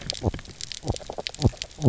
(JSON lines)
{"label": "biophony, knock croak", "recorder": "SoundTrap 300"}